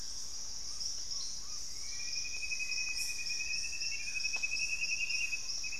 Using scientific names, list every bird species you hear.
Amazona farinosa, Formicarius analis, Cercomacra cinerascens